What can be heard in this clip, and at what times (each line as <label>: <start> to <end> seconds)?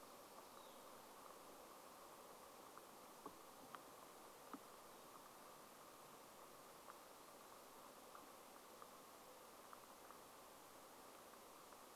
unidentified sound: 0 to 2 seconds